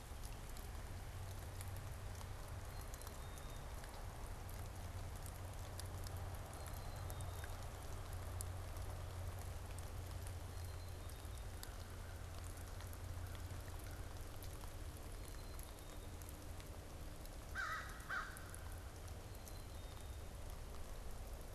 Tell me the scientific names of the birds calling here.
Poecile atricapillus, Corvus brachyrhynchos